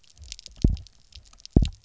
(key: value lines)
label: biophony, double pulse
recorder: SoundTrap 300